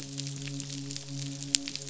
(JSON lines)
{"label": "biophony, midshipman", "recorder": "SoundTrap 500"}